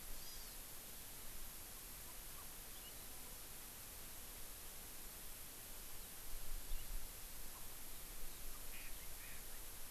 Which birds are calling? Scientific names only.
Chlorodrepanis virens, Garrulax canorus